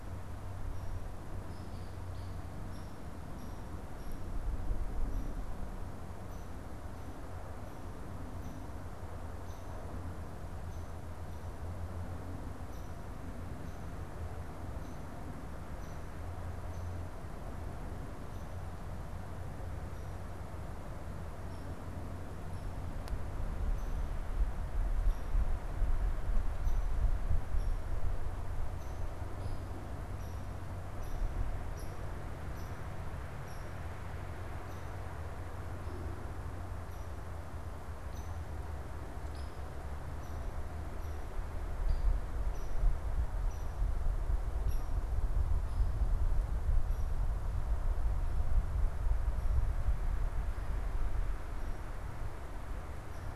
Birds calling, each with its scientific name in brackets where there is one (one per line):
Hairy Woodpecker (Dryobates villosus)